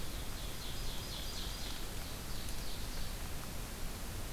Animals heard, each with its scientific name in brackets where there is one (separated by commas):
Ovenbird (Seiurus aurocapilla)